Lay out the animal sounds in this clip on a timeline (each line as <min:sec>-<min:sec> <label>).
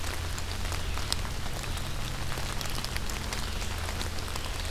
0:02.4-0:04.7 Red-eyed Vireo (Vireo olivaceus)